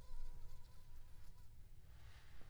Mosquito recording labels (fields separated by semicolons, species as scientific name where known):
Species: Aedes aegypti; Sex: female; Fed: unfed; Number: one; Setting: cup